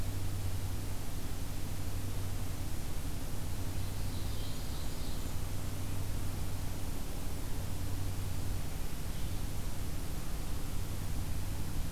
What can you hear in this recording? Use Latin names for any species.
Seiurus aurocapilla